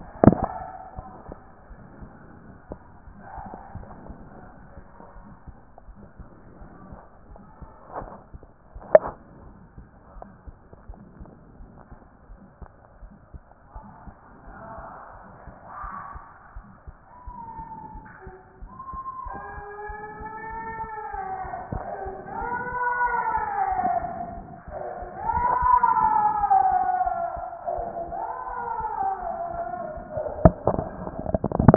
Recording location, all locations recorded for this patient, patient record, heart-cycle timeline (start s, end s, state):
aortic valve (AV)
aortic valve (AV)+pulmonary valve (PV)+tricuspid valve (TV)
#Age: nan
#Sex: Female
#Height: nan
#Weight: nan
#Pregnancy status: True
#Murmur: Present
#Murmur locations: aortic valve (AV)+pulmonary valve (PV)
#Most audible location: pulmonary valve (PV)
#Systolic murmur timing: Early-systolic
#Systolic murmur shape: Plateau
#Systolic murmur grading: I/VI
#Systolic murmur pitch: Low
#Systolic murmur quality: Harsh
#Diastolic murmur timing: nan
#Diastolic murmur shape: nan
#Diastolic murmur grading: nan
#Diastolic murmur pitch: nan
#Diastolic murmur quality: nan
#Outcome: Normal
#Campaign: 2014 screening campaign
0.00	6.20	unannotated
6.20	6.26	S2
6.26	6.60	diastole
6.60	6.70	S1
6.70	6.88	systole
6.88	6.98	S2
6.98	7.30	diastole
7.30	7.42	S1
7.42	7.60	systole
7.60	7.70	S2
7.70	7.98	diastole
7.98	8.10	S1
8.10	8.32	systole
8.32	8.40	S2
8.40	8.76	diastole
8.76	8.86	S1
8.86	9.04	systole
9.04	9.14	S2
9.14	9.42	diastole
9.42	9.50	S1
9.50	9.76	systole
9.76	9.84	S2
9.84	10.16	diastole
10.16	10.26	S1
10.26	10.46	systole
10.46	10.56	S2
10.56	10.88	diastole
10.88	10.98	S1
10.98	11.18	systole
11.18	11.28	S2
11.28	11.60	diastole
11.60	11.68	S1
11.68	11.92	systole
11.92	11.98	S2
11.98	12.30	diastole
12.30	12.38	S1
12.38	12.60	systole
12.60	12.68	S2
12.68	13.02	diastole
13.02	13.12	S1
13.12	13.32	systole
13.32	13.42	S2
13.42	13.76	diastole
13.76	13.86	S1
13.86	14.06	systole
14.06	14.14	S2
14.14	14.48	diastole
14.48	14.58	S1
14.58	14.78	systole
14.78	14.86	S2
14.86	15.16	diastole
15.16	15.24	S1
15.24	15.46	systole
15.46	15.56	S2
15.56	15.82	diastole
15.82	15.94	S1
15.94	16.14	systole
16.14	16.22	S2
16.22	16.56	diastole
16.56	16.66	S1
16.66	16.86	systole
16.86	16.96	S2
16.96	17.26	diastole
17.26	17.36	S1
17.36	17.56	systole
17.56	17.66	S2
17.66	17.94	diastole
17.94	18.04	S1
18.04	18.24	systole
18.24	18.34	S2
18.34	18.62	diastole
18.62	18.72	S1
18.72	18.92	systole
18.92	19.02	S2
19.02	19.26	diastole
19.26	19.38	S1
19.38	19.54	systole
19.54	19.64	S2
19.64	19.86	diastole
19.86	19.98	S1
19.98	20.18	systole
20.18	20.26	S2
20.26	20.52	diastole
20.52	20.60	S1
20.60	20.80	systole
20.80	20.90	S2
20.90	21.14	diastole
21.14	21.24	S1
21.24	21.42	systole
21.42	21.52	S2
21.52	21.74	diastole
21.74	21.86	S1
21.86	22.04	systole
22.04	22.14	S2
22.14	22.36	diastole
22.36	22.50	S1
22.50	31.76	unannotated